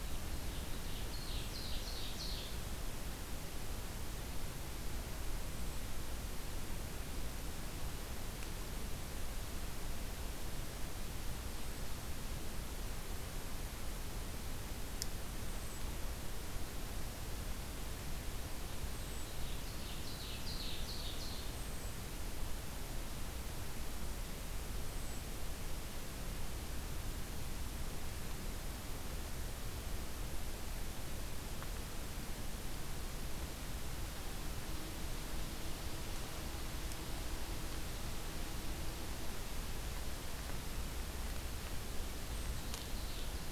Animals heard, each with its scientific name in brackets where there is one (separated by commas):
Ovenbird (Seiurus aurocapilla)